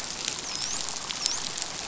{"label": "biophony, dolphin", "recorder": "SoundTrap 500"}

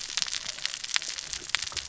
{"label": "biophony, cascading saw", "recorder": "SoundTrap 600 or HydroMoth"}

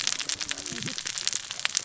{"label": "biophony, cascading saw", "recorder": "SoundTrap 600 or HydroMoth"}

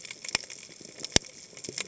{"label": "biophony, cascading saw", "recorder": "HydroMoth"}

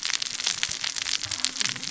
{"label": "biophony, cascading saw", "recorder": "SoundTrap 600 or HydroMoth"}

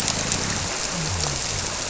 {"label": "biophony", "recorder": "SoundTrap 300"}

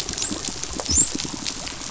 {"label": "biophony, dolphin", "recorder": "SoundTrap 500"}
{"label": "biophony", "recorder": "SoundTrap 500"}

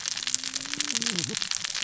{"label": "biophony, cascading saw", "recorder": "SoundTrap 600 or HydroMoth"}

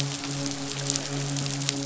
{"label": "biophony, midshipman", "recorder": "SoundTrap 500"}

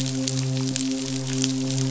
{"label": "biophony, midshipman", "recorder": "SoundTrap 500"}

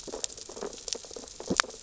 {"label": "biophony, sea urchins (Echinidae)", "recorder": "SoundTrap 600 or HydroMoth"}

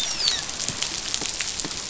{"label": "biophony, dolphin", "recorder": "SoundTrap 500"}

